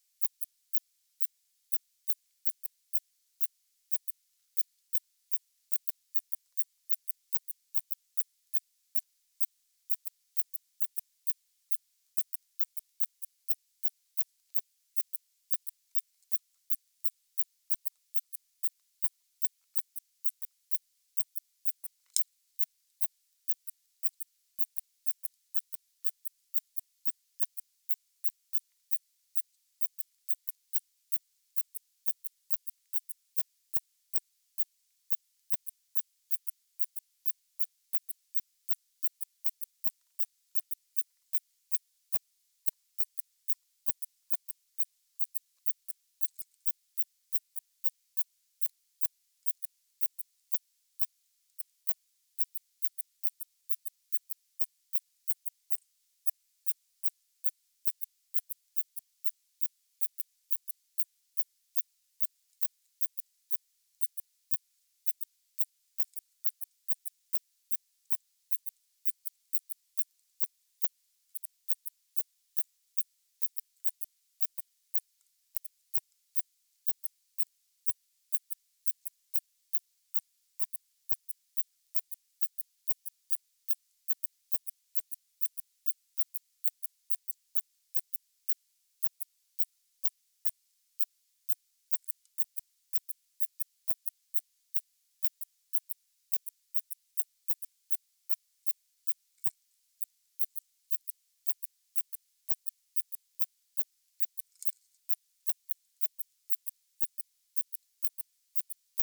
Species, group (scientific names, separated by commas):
Phaneroptera falcata, Orthoptera